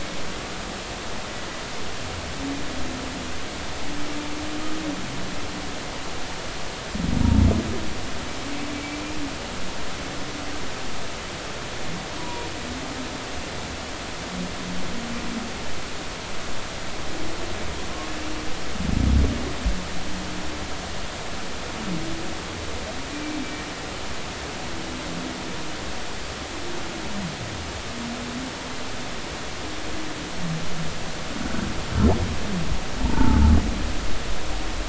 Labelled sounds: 12.2	12.5	humpback whale, 0.90 to 1.0 kHz
33.0	33.4	humpback whale, 0.83 to 1.5 kHz

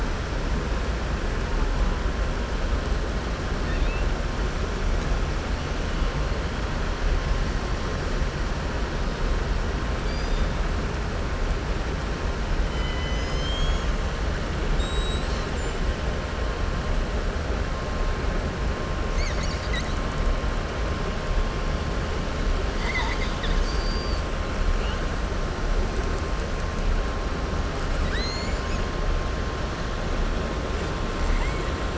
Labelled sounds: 3.6	4.1	killer whale, southern resident, 1.8 to 3.9 kHz
12.6	13.9	killer whale, southern resident, 2.0 to 7.6 kHz
22.7	24.2	killer whale, southern resident, 0.94 to 7.4 kHz
27.9	28.9	killer whale, southern resident, 1.7 to 7.8 kHz

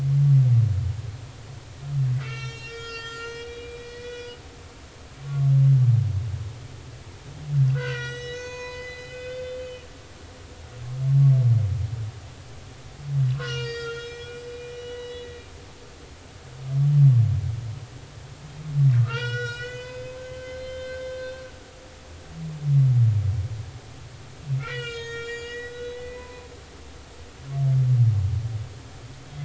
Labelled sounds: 2.2	4.3	humpback whale, 1.2 to 7.6 kHz
5.2	5.5	humpback whale, 1.1 to 1.2 kHz
7.7	9.9	humpback whale, 0.90 to 7.8 kHz
13.4	15.3	humpback whale, 1.2 to 5.9 kHz
18.9	21.5	humpback whale, 0.86 to 7.3 kHz
24.6	26.5	humpback whale, 0.93 to 7.1 kHz

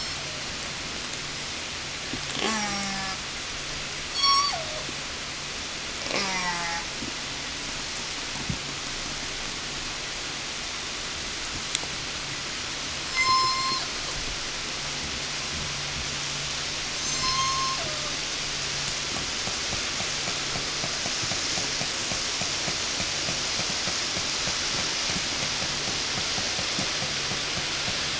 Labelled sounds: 2.2	3.3	killer whale, southern resident, call S04, 0 to 8.0 kHz
4.0	5.0	killer whale, southern resident, call S03, 0 to 8.0 kHz
5.9	7.1	killer whale, southern resident, call S04, 0 to 8.0 kHz
12.8	14.4	killer whale, southern resident, 0.02 to 8.0 kHz
16.8	18.3	killer whale, southern resident, call S03, 0 to 8.0 kHz
18.8	28.1	killer whale, 0 to 8.0 kHz

